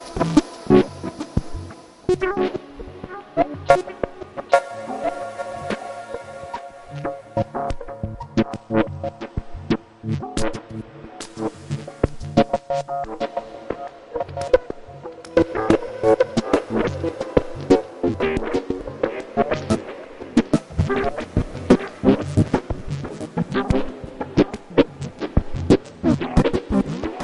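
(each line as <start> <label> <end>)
0.0 An electric guitar plays a repeated distorted melody. 27.2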